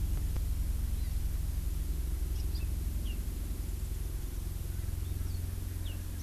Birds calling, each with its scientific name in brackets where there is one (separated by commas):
Hawaii Amakihi (Chlorodrepanis virens)